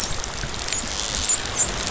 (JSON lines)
{"label": "biophony, dolphin", "recorder": "SoundTrap 500"}